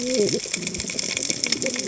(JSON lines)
{"label": "biophony, cascading saw", "recorder": "HydroMoth"}